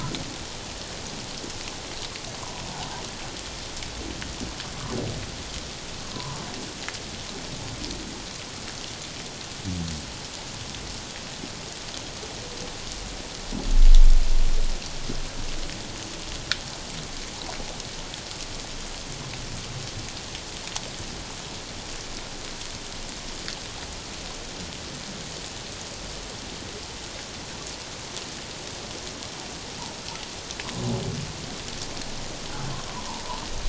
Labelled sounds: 6.1	6.4	humpback whale, 0.84 to 1.2 kHz

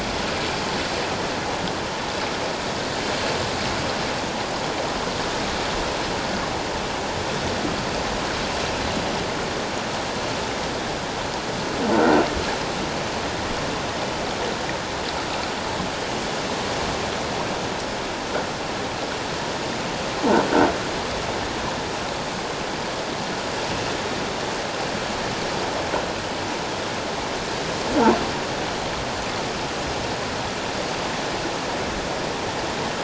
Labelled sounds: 11.9	12.2	croaking sound likely from a nearby submerged object, 1.3 to 1.6 kHz

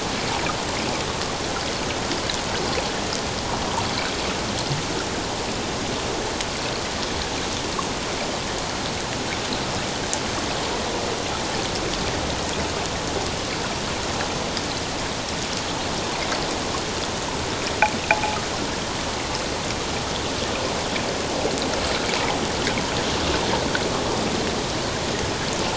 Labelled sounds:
18.1	18.4	rubbing on or near the hydrophone, 0.78 to 0.91 kHz

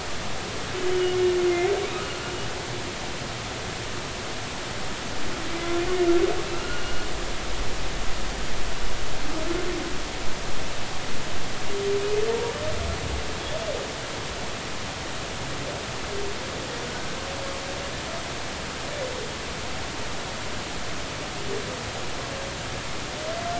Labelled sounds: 6.4	7.0	humpback whale, 2.6 to 2.9 kHz

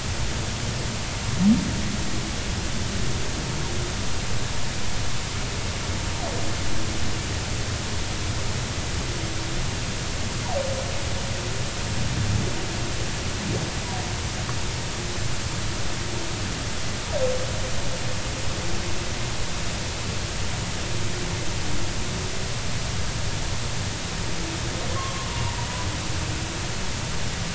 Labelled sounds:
24.9	25.3	humpback whale, 0.99 to 1.2 kHz

